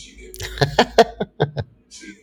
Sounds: Laughter